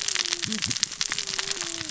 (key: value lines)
label: biophony, cascading saw
recorder: SoundTrap 600 or HydroMoth